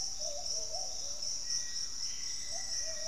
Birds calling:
Hauxwell's Thrush (Turdus hauxwelli), Thrush-like Wren (Campylorhynchus turdinus), unidentified bird, Pygmy Antwren (Myrmotherula brachyura), Black-faced Antthrush (Formicarius analis)

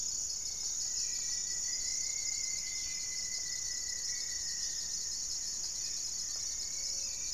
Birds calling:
Black-faced Antthrush (Formicarius analis), Gray-fronted Dove (Leptotila rufaxilla), Hauxwell's Thrush (Turdus hauxwelli), Rufous-fronted Antthrush (Formicarius rufifrons)

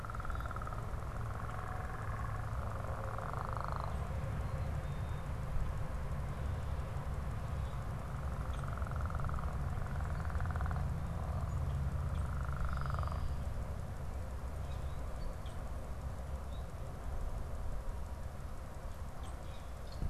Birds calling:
Red-winged Blackbird (Agelaius phoeniceus), Common Grackle (Quiscalus quiscula)

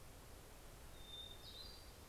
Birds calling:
Hermit Thrush (Catharus guttatus)

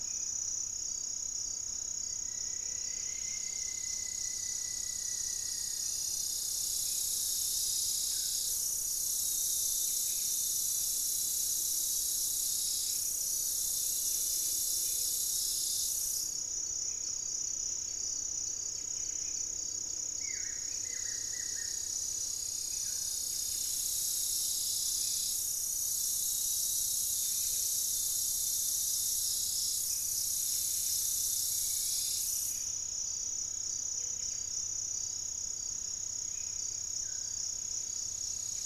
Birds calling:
Black-faced Antthrush (Formicarius analis), unidentified bird, Gray-fronted Dove (Leptotila rufaxilla), Buff-breasted Wren (Cantorchilus leucotis), Striped Woodcreeper (Xiphorhynchus obsoletus), Buff-throated Woodcreeper (Xiphorhynchus guttatus)

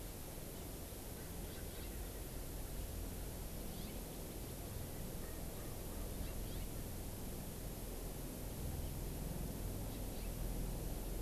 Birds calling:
Erckel's Francolin (Pternistis erckelii)

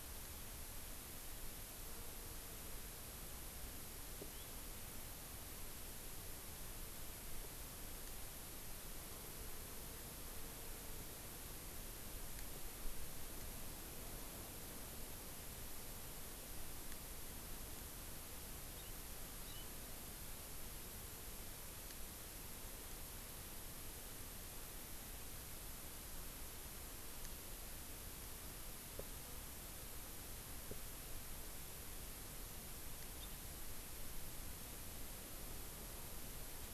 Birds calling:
House Finch (Haemorhous mexicanus)

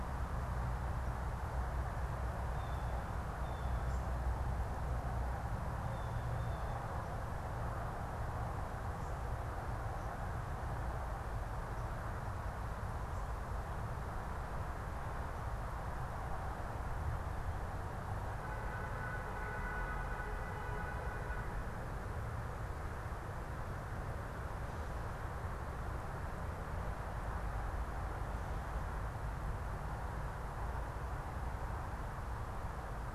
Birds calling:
Blue Jay (Cyanocitta cristata)

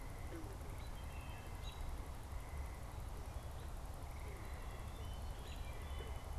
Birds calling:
Wood Thrush (Hylocichla mustelina), American Robin (Turdus migratorius)

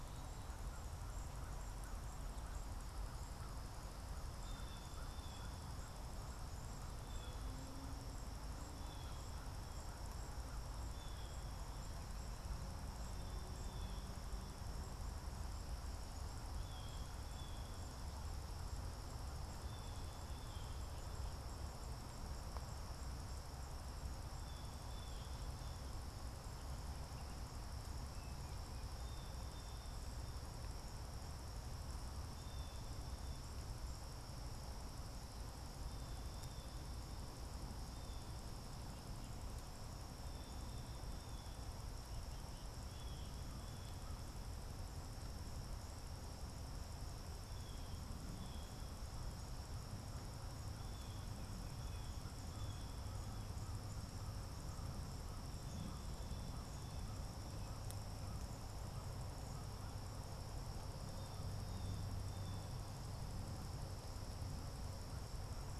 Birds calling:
American Crow (Corvus brachyrhynchos), Blue Jay (Cyanocitta cristata)

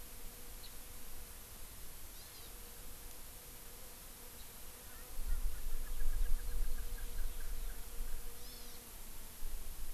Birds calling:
House Finch (Haemorhous mexicanus), Erckel's Francolin (Pternistis erckelii), Hawaii Amakihi (Chlorodrepanis virens)

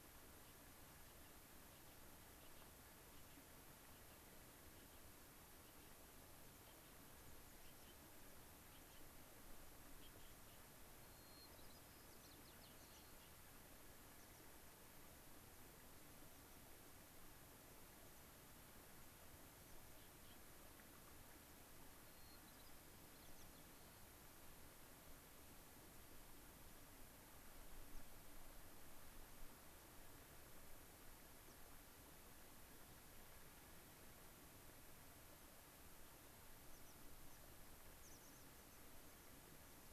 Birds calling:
American Pipit (Anthus rubescens), White-crowned Sparrow (Zonotrichia leucophrys)

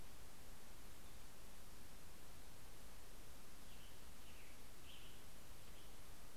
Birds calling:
Western Tanager (Piranga ludoviciana)

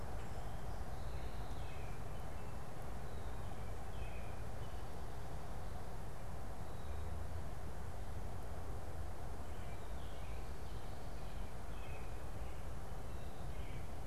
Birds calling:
American Robin (Turdus migratorius)

